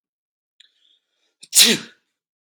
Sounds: Sneeze